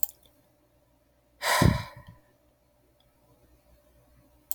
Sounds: Sigh